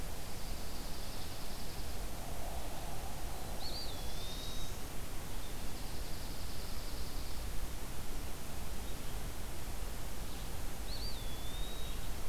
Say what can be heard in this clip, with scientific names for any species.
Junco hyemalis, Setophaga caerulescens, Contopus virens